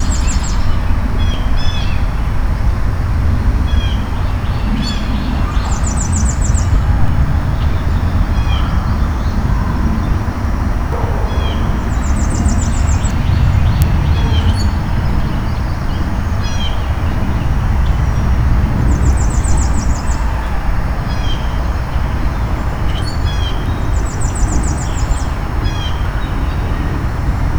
Is there more than one bird chirping?
yes